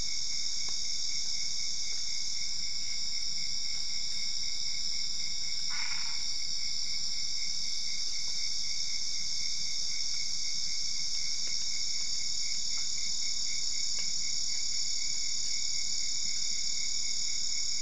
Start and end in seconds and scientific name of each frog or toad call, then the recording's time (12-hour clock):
5.6	6.3	Boana albopunctata
1:00am